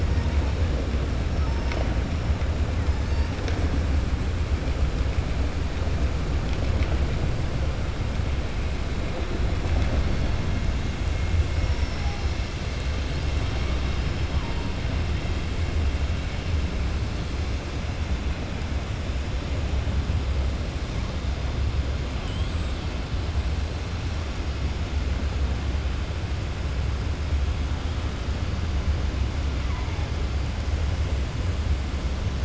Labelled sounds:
22.2	22.7	killer whale, 7.1 to 7.9 kHz

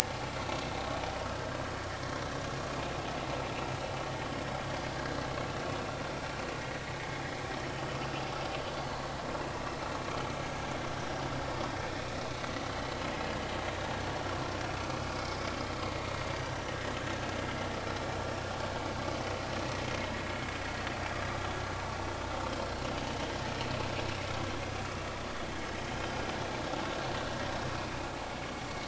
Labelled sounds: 0.0	0.3	vessel noise, 0.80 to 0.96 kHz
7.6	7.9	vessel noise, 2.9 to 3.1 kHz
12.7	13.0	vessel noise, 2.9 to 3.2 kHz
14.9	15.2	vessel noise, 4.9 to 5.1 kHz
27.7	28.0	vessel noise, 2.4 to 2.6 kHz

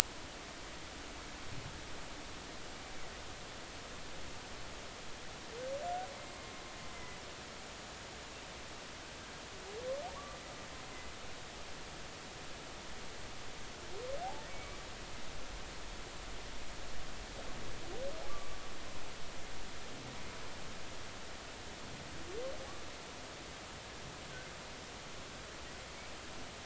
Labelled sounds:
6.9	7.2	killer whale, Bigg's (transient), 2.0 to 2.1 kHz
8.2	8.4	killer whale, Bigg's (transient), 6.7 to 6.9 kHz
10.1	10.4	humpback whale, 0.80 to 1.2 kHz
14.5	14.8	humpback whale, 2.2 to 2.3 kHz
18.3	18.6	humpback whale, 1.1 to 1.2 kHz

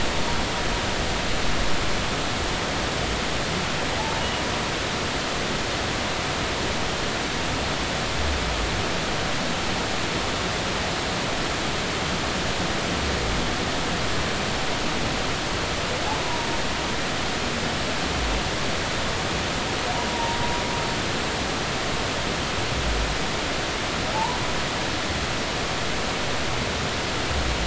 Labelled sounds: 4.0	4.2	humpback whale, 0.80 to 0.93 kHz
20.1	20.4	humpback whale, 0.86 to 0.99 kHz
24.1	24.4	humpback whale, 0.80 to 1.0 kHz

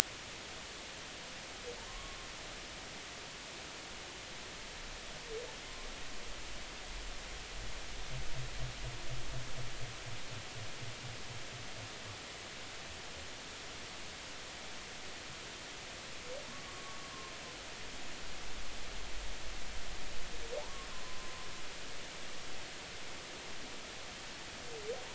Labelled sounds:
1.9	2.2	humpback whale, 0.96 to 1.2 kHz
5.7	5.9	humpback whale, 0.99 to 1.2 kHz
16.6	17.1	humpback whale, 1.1 to 1.2 kHz
20.6	21.3	humpback whale, 0.80 to 1.2 kHz

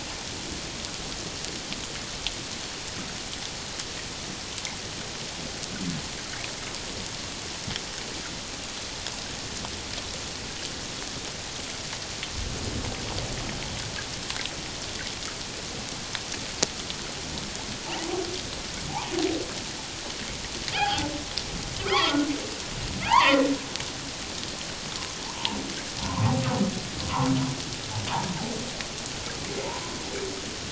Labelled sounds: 20.7	21.1	humpback whale, 0.78 to 3.4 kHz
21.9	23.5	humpback whale, 0.78 to 3.5 kHz
25.2	25.6	humpback whale, 0.78 to 1.1 kHz
26.0	26.4	humpback whale, 0.78 to 1.2 kHz

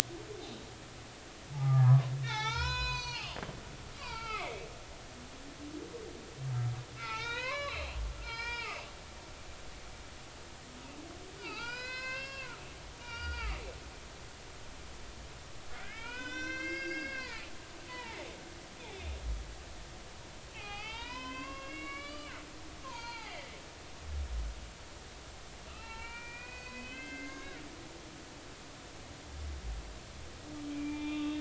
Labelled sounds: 1.5	3.4	humpback whale, 0.80 to 7.1 kHz
4.0	4.6	humpback whale, 0.80 to 5.0 kHz
7.0	8.9	humpback whale, 0.83 to 5.3 kHz
11.4	12.5	humpback whale, 0.80 to 6.8 kHz
13.0	13.7	humpback whale, 0.86 to 5.7 kHz
15.7	17.5	humpback whale, 0.83 to 7.5 kHz
17.9	19.0	humpback whale, 0.80 to 3.0 kHz
20.5	22.3	humpback whale, 0.80 to 5.2 kHz
22.8	23.5	humpback whale, 0.80 to 4.8 kHz
25.7	27.6	humpback whale, 0.83 to 4.6 kHz
30.7	31.3	humpback whale, 0.86 to 3.7 kHz

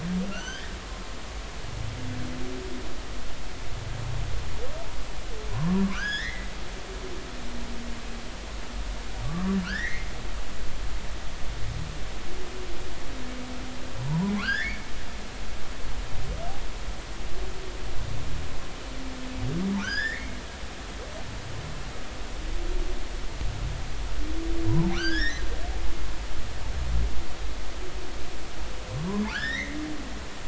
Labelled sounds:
0.3	0.7	humpback whale, 1.3 to 6.3 kHz
5.5	6.5	humpback whale, 0.93 to 6.9 kHz
9.6	10.1	humpback whale, 1.3 to 2.3 kHz
14.1	14.9	humpback whale, 0.86 to 5.2 kHz
19.8	20.4	humpback whale, 1.2 to 5.6 kHz
24.7	25.4	humpback whale, 0.80 to 5.6 kHz
29.0	29.8	humpback whale, 0.93 to 3.9 kHz

